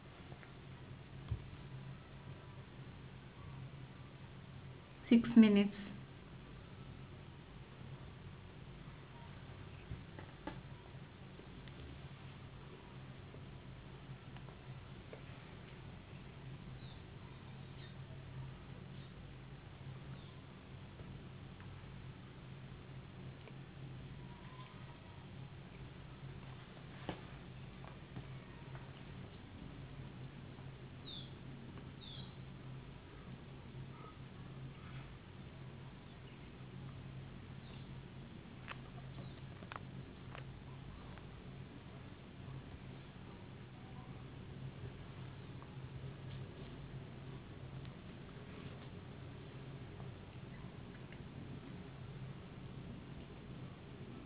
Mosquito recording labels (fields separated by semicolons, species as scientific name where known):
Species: no mosquito; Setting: insect culture